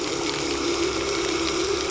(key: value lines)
label: anthrophony, boat engine
recorder: SoundTrap 300